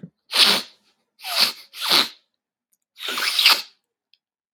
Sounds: Sniff